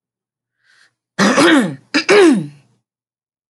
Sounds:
Throat clearing